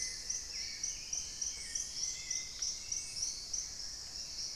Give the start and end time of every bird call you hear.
[0.00, 0.61] Gray-fronted Dove (Leptotila rufaxilla)
[0.00, 3.11] Dusky-throated Antshrike (Thamnomanes ardesiacus)
[0.00, 4.55] Hauxwell's Thrush (Turdus hauxwelli)
[0.00, 4.55] Paradise Tanager (Tangara chilensis)

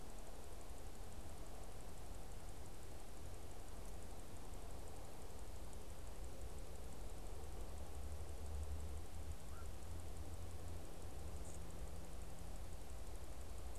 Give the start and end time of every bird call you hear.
[9.44, 9.74] Black-crowned Night-Heron (Nycticorax nycticorax)

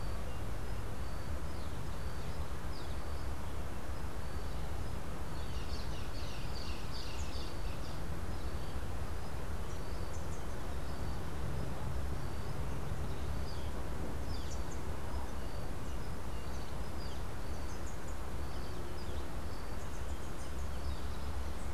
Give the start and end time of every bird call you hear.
[4.98, 8.08] Social Flycatcher (Myiozetetes similis)
[14.18, 21.68] Rufous-capped Warbler (Basileuterus rufifrons)

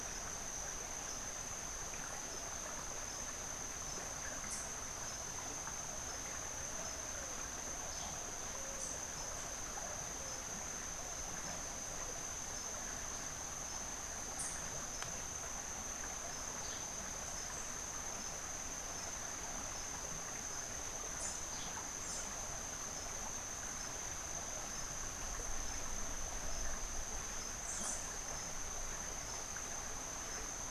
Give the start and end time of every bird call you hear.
[4.35, 4.75] Cabanis's Wren (Cantorchilus modestus)

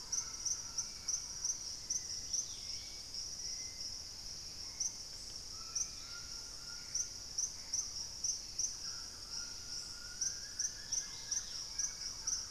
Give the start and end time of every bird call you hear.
[0.00, 1.68] Thrush-like Wren (Campylorhynchus turdinus)
[0.00, 12.50] Hauxwell's Thrush (Turdus hauxwelli)
[0.00, 12.50] White-throated Toucan (Ramphastos tucanus)
[2.17, 3.27] Dusky-capped Greenlet (Pachysylvia hypoxantha)
[3.88, 7.08] Purple-throated Fruitcrow (Querula purpurata)
[5.78, 6.38] unidentified bird
[5.88, 8.07] Gray Antbird (Cercomacra cinerascens)
[6.28, 12.50] Thrush-like Wren (Campylorhynchus turdinus)
[9.78, 12.38] Wing-barred Piprites (Piprites chloris)
[10.57, 11.97] Dusky-capped Greenlet (Pachysylvia hypoxantha)

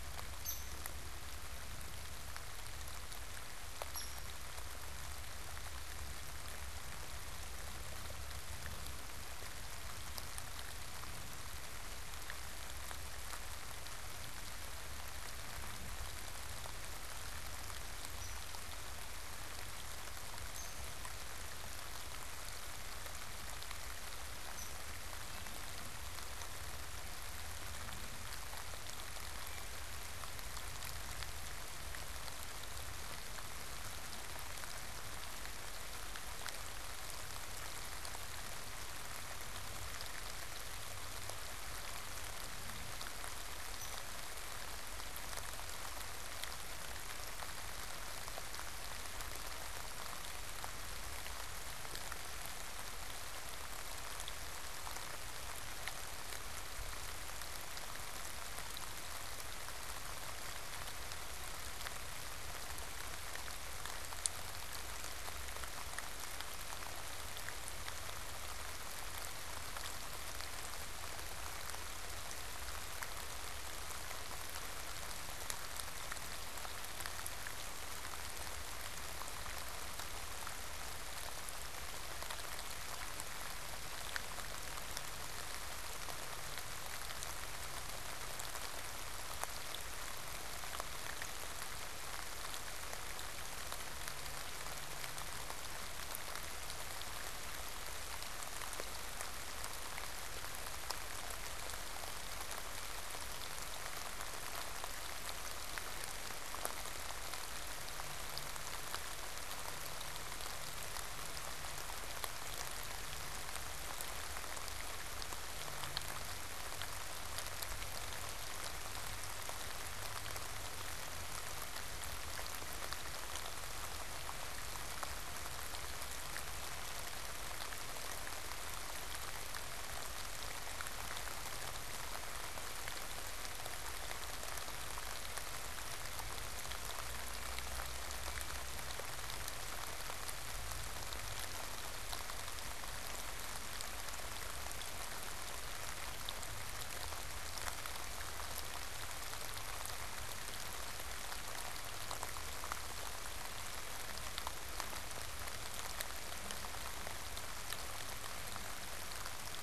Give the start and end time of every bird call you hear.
[0.00, 4.60] Hairy Woodpecker (Dryobates villosus)
[18.00, 21.10] Hairy Woodpecker (Dryobates villosus)
[24.20, 25.10] Hairy Woodpecker (Dryobates villosus)
[43.70, 44.10] Hairy Woodpecker (Dryobates villosus)

